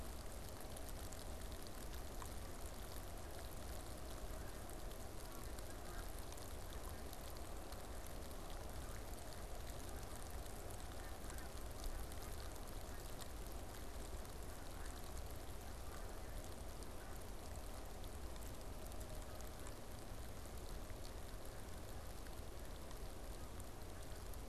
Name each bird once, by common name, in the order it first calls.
Snow Goose